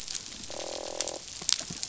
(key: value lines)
label: biophony, croak
recorder: SoundTrap 500